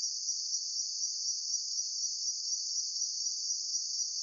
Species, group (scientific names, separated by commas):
Anaxipha tinnulenta, Orthoptera